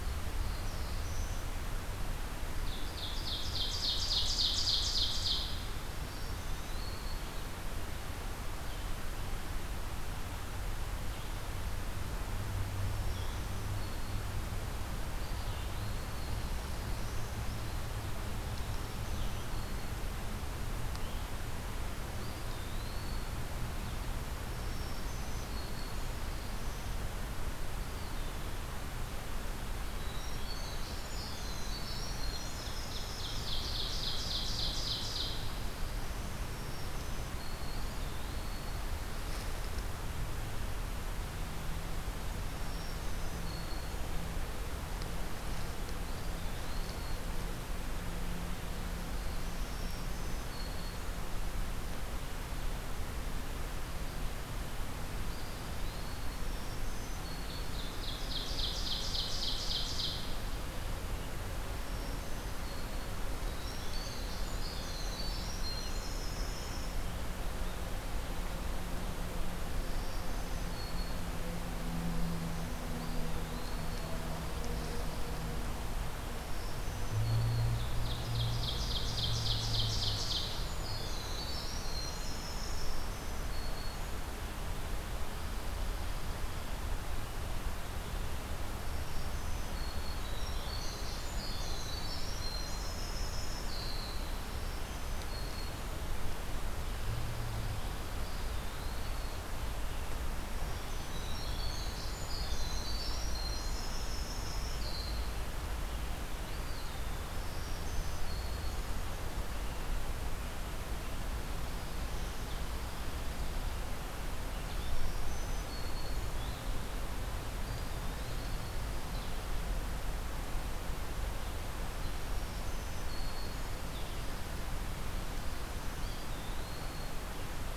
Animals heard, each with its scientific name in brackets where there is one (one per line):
Black-throated Blue Warbler (Setophaga caerulescens)
Winter Wren (Troglodytes hiemalis)
Eastern Wood-Pewee (Contopus virens)
Black-throated Green Warbler (Setophaga virens)
Ovenbird (Seiurus aurocapilla)
Blue-headed Vireo (Vireo solitarius)